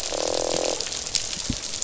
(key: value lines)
label: biophony, croak
recorder: SoundTrap 500